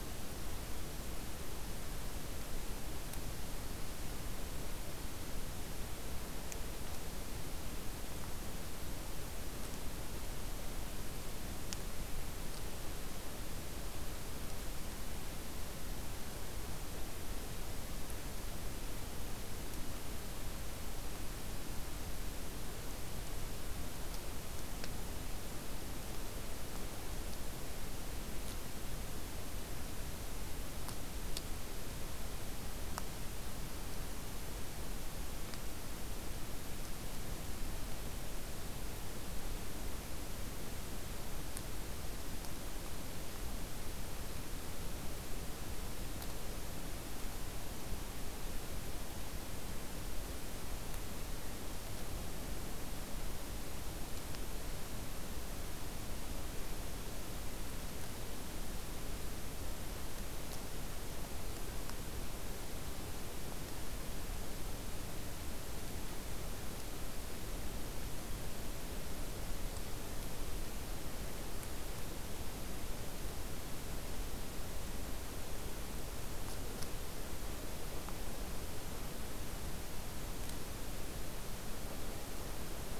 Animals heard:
forest ambience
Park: Acadia National Park